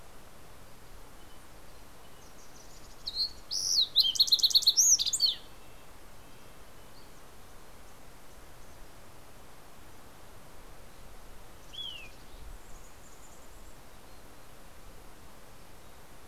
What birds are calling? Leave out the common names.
Passerella iliaca, Sitta canadensis, Poecile gambeli